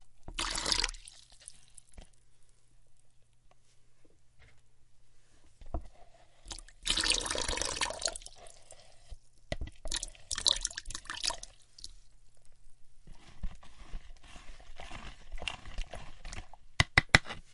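0.0s Water is being poured briefly. 2.1s
5.7s An object taps a wooden surface. 5.9s
6.4s Water is being poured steadily. 9.4s
9.5s Water is poured in two short bursts. 11.9s
13.4s Footsteps are heard while someone holds a cup of water. 16.7s
16.8s A metal object taps a hard surface three times. 17.5s

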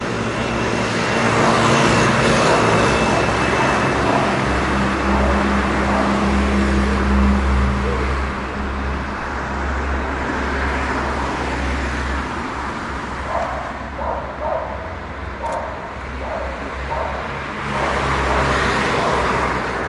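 0.0s A dog barks loudly occasionally in the background. 19.9s
0.0s Cars passing by quickly. 19.9s
0.0s Loud traffic noise in an urban area. 19.9s
0.9s A dog barks outdoors in the background. 9.1s
15.2s A dog barks loudly outdoors in the background. 19.9s
15.2s Fast cars passing by in an urban area. 19.9s

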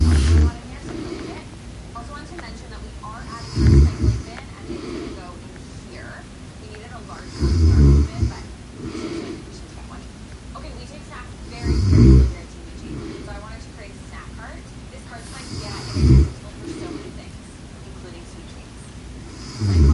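0.0s A person snores loudly and nasally indoors. 0.5s
0.0s A television is playing nearby indoors. 19.9s
0.8s A person exhales quietly while sleeping. 1.5s
3.5s A person snores loudly and nasally indoors. 4.2s
4.6s A person exhales quietly while sleeping. 5.3s
7.4s A person snores loudly and nasally indoors. 8.3s
8.8s A person exhales quietly while sleeping. 9.4s
11.6s A person snores loudly and nasally indoors. 12.4s
12.8s A person exhales quietly while sleeping. 13.4s
15.9s A person snores loudly and nasally indoors. 16.3s
16.6s A person exhales quietly while sleeping. 17.2s
19.5s A person snores loudly and nasally indoors. 19.9s

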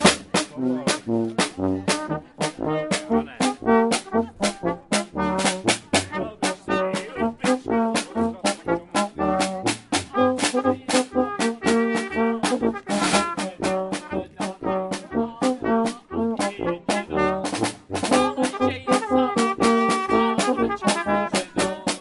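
0.0s A person is playing the drum rhythmically. 22.0s
0.5s A tuba is being played rhythmically. 22.0s
0.5s People are talking in the distance. 22.0s
2.0s Someone plays the trumpet rhythmically. 22.0s

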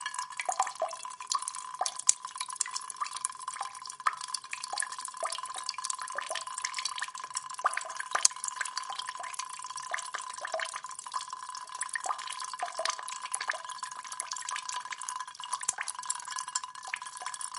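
0.0s Water is constantly running into ceramics while another source of water drips irregularly. 17.6s

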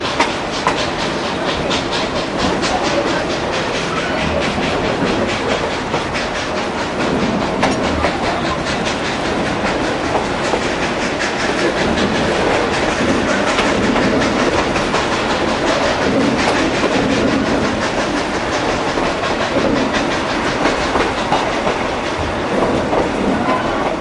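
0.0s Chugging and clacking of a steam train nearby. 24.0s

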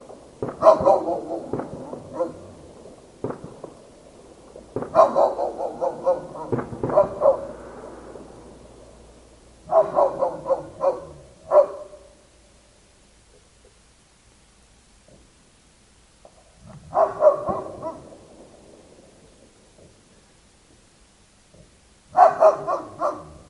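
0.4s A dog barks loudly while firecrackers explode in the distance. 2.3s
3.2s A firecracker explodes. 3.8s
4.8s A dog barks repeatedly while firecrackers explode continuously in the distance. 8.4s
9.6s A dog barks loudly. 11.9s
16.9s A dog barks loudly while firecrackers explode in the distance. 18.1s
22.2s A dog barks loudly. 23.4s

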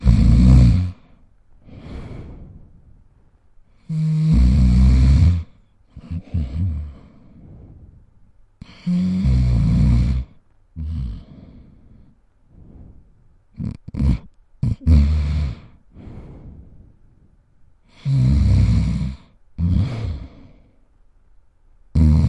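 0.0s A person snores loudly once. 1.0s
3.9s A person snores with a high pitch. 5.5s
5.9s Someone snores softly. 7.1s
8.5s One person snores intermittently. 11.9s
13.5s A person is snoring with rattling sounds and pauses. 15.6s
18.0s Snoring loudly. 19.2s
19.5s Someone is snoring. 20.3s
21.9s Someone is snoring very loudly. 22.3s

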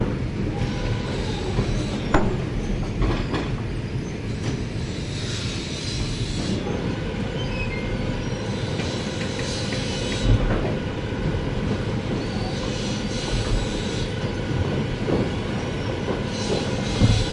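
0.0s Atmospheric industrial sounds from a woodworking industry. 17.3s

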